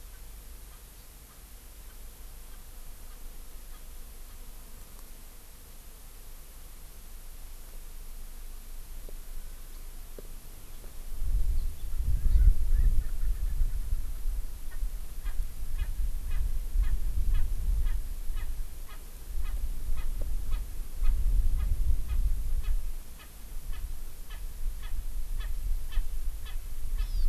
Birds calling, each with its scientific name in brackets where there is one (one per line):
Erckel's Francolin (Pternistis erckelii)
Hawaii Amakihi (Chlorodrepanis virens)